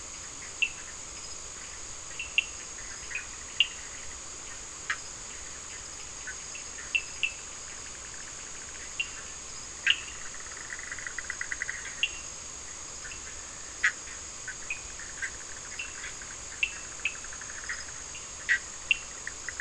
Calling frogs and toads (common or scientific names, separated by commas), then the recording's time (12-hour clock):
Cochran's lime tree frog, Bischoff's tree frog
10:15pm